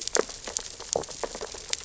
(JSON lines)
{"label": "biophony, sea urchins (Echinidae)", "recorder": "SoundTrap 600 or HydroMoth"}